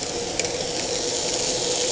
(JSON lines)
{"label": "anthrophony, boat engine", "recorder": "HydroMoth"}